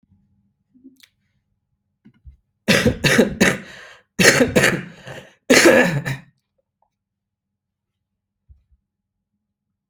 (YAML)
expert_labels:
- quality: ok
  cough_type: wet
  dyspnea: false
  wheezing: false
  stridor: false
  choking: false
  congestion: false
  nothing: true
  diagnosis: lower respiratory tract infection
  severity: mild
age: 27
gender: male
respiratory_condition: true
fever_muscle_pain: false
status: symptomatic